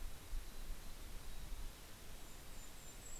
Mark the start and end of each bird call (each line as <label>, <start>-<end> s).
Mountain Chickadee (Poecile gambeli), 0.0-3.2 s
Golden-crowned Kinglet (Regulus satrapa), 1.8-3.2 s